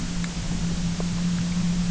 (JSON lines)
{"label": "anthrophony, boat engine", "recorder": "SoundTrap 300"}